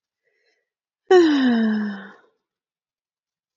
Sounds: Sigh